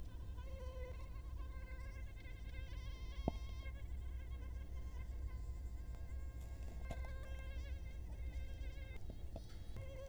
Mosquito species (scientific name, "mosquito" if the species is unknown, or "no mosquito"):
Culex quinquefasciatus